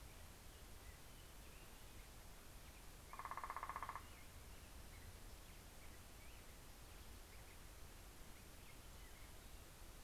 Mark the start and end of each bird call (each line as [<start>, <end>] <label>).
[0.00, 10.01] Black-headed Grosbeak (Pheucticus melanocephalus)
[2.91, 4.61] Northern Flicker (Colaptes auratus)